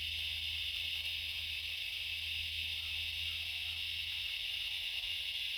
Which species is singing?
Diceroprocta grossa